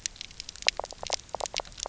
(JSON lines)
{"label": "biophony", "recorder": "SoundTrap 300"}